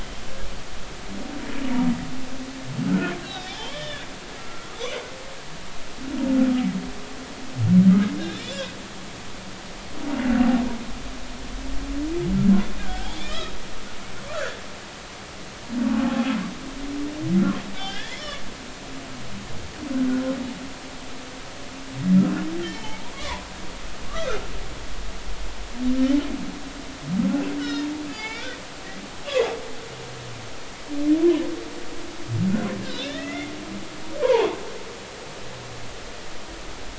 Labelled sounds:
2.9	4.1	humpback whale, 1.3 to 4.1 kHz
4.4	4.7	humpback whale, 1.3 to 1.4 kHz
8.2	8.5	humpback whale, 1.5 to 3.8 kHz
12.8	13.5	humpback whale, 0.80 to 5.4 kHz
14.3	14.6	humpback whale, 1.2 to 1.9 kHz
16.0	16.3	humpback whale, 0.80 to 0.90 kHz
17.8	18.4	humpback whale, 1.5 to 3.7 kHz
22.6	23.5	humpback whale, 0.80 to 3.2 kHz
24.1	24.4	humpback whale, 1.1 to 1.6 kHz
27.6	28.5	humpback whale, 1.7 to 5.5 kHz
33.0	33.5	humpback whale, 1.6 to 3.7 kHz
34.2	34.6	humpback whale, 0.80 to 1.2 kHz

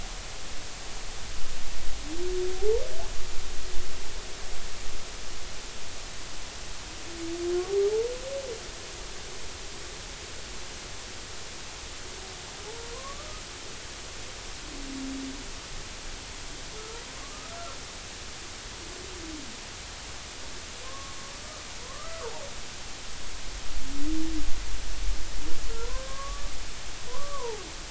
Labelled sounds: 2.5	2.8	humpback whale, 0.80 to 0.99 kHz
12.9	13.4	humpback whale, 0.96 to 1.3 kHz
17.2	17.6	humpback whale, 1.1 to 1.4 kHz
20.8	21.2	humpback whale, 0.99 to 1.2 kHz
21.8	22.3	humpback whale, 0.96 to 1.4 kHz
25.7	26.5	humpback whale, 0.90 to 1.2 kHz
27.1	27.6	humpback whale, 0.80 to 1.2 kHz

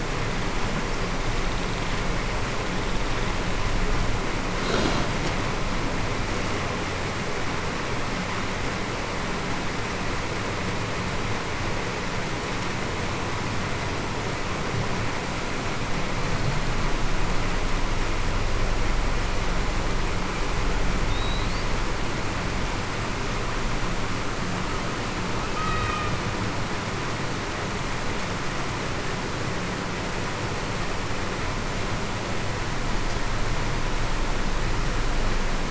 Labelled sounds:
25.6	26.1	killer whale, Bigg's (transient), 1.2 to 1.3 kHz

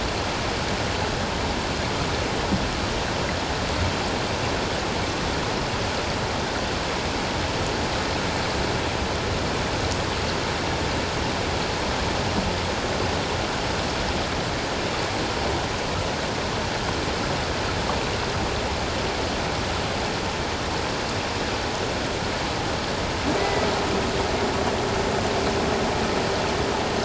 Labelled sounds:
23.4	23.7	vessel noise, 1.9 to 2.1 kHz

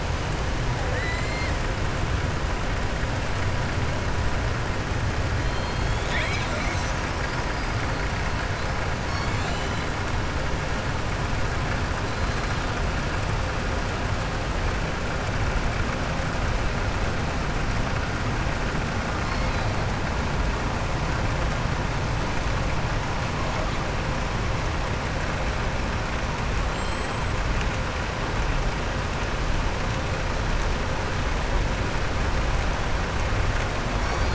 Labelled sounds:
26.6	27.2	killer whale, southern resident, 7.3 to 7.8 kHz

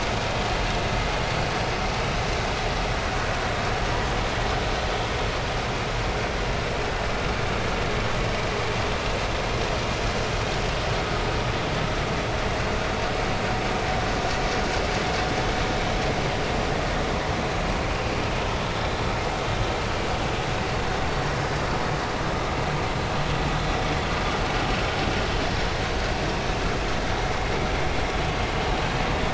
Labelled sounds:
25.1	25.4	vessel noise, 3.0 to 3.1 kHz

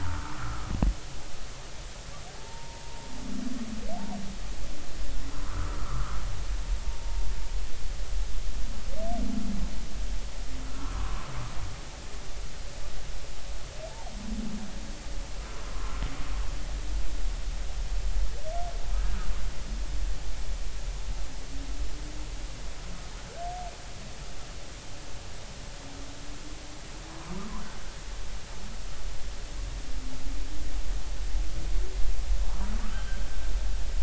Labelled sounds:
0.4	0.7	humpback whale, 1.1 to 1.5 kHz
2.3	3.1	humpback whale, 0.80 to 1.0 kHz
5.4	7.2	humpback whale, 0.86 to 1.6 kHz
10.9	11.2	humpback whale, 0.96 to 1.2 kHz
11.7	12.0	humpback whale, 0.99 to 1.5 kHz
15.4	15.6	humpback whale, 1.2 to 1.4 kHz
27.1	27.3	humpback whale, 0.93 to 1.1 kHz
32.9	33.2	humpback whale, 1.2 to 3.2 kHz

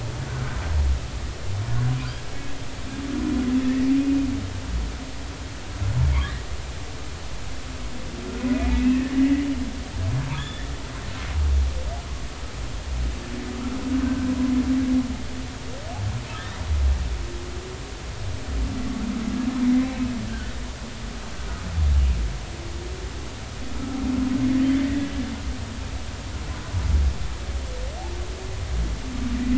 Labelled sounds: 8.5	9.2	humpback whale, 1.7 to 2.1 kHz
10.3	10.7	humpback whale, 1.6 to 3.6 kHz
14.0	14.3	humpback whale, 1.5 to 1.6 kHz
19.8	20.6	humpback whale, 1.4 to 2.3 kHz
24.8	25.1	humpback whale, 1.8 to 2.1 kHz

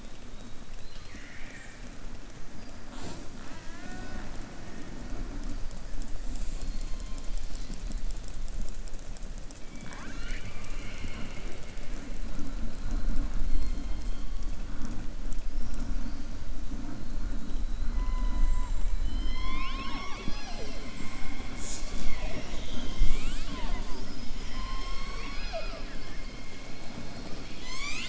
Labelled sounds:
0.7	1.8	killer whale, southern resident, 1.5 to 4.4 kHz
18.9	20.8	killer whale, southern resident, 0.41 to 5.9 kHz

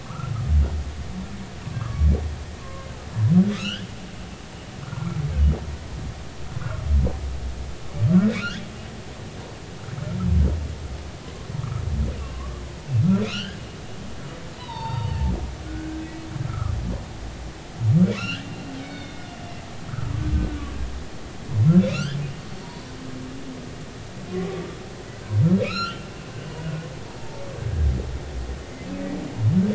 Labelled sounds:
0.1	0.3	humpback whale, 1.1 to 1.4 kHz
1.7	2.1	humpback whale, 1.1 to 1.7 kHz
2.6	2.9	humpback whale, 1.0 to 1.1 kHz
3.5	3.9	humpback whale, 1.2 to 3.5 kHz
4.8	5.2	humpback whale, 0.93 to 1.5 kHz
8.3	8.7	humpback whale, 2.4 to 3.5 kHz
12.2	13.6	humpback whale, 0.99 to 3.4 kHz
14.6	15.2	humpback whale, 0.83 to 4.7 kHz
15.6	16.7	humpback whale, 1.1 to 2.6 kHz
18.1	19.3	humpback whale, 1.1 to 4.4 kHz
19.9	20.1	humpback whale, 1.2 to 1.6 kHz
21.8	23.0	humpback whale, 0.90 to 4.6 kHz
25.6	26.0	humpback whale, 1.2 to 4.4 kHz
27.2	27.4	humpback whale, 0.86 to 0.96 kHz
28.6	28.9	humpback whale, 2.0 to 2.2 kHz

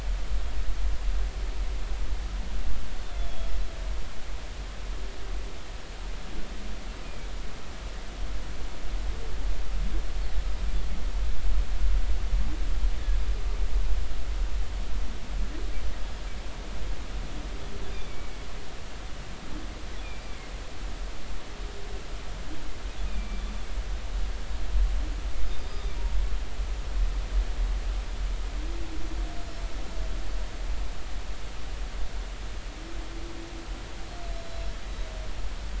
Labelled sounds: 3.0	3.5	humpback whale, 3.3 to 3.6 kHz
17.9	18.5	humpback whale, 2.2 to 2.5 kHz
20.0	20.5	humpback whale, 2.1 to 2.5 kHz
23.1	23.4	humpback whale, 2.3 to 2.6 kHz
26.7	27.0	humpback whale, 3.5 to 3.7 kHz
34.3	34.7	humpback whale, 4.0 to 4.1 kHz

